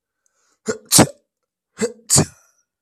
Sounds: Sneeze